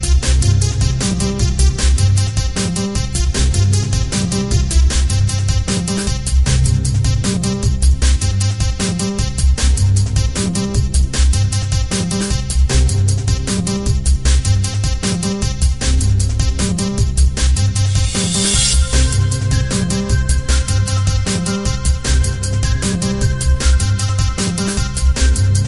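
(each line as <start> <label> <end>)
0.0 High-tempo music plays with rhythmic beeping. 25.7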